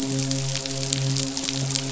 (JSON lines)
{"label": "biophony, midshipman", "recorder": "SoundTrap 500"}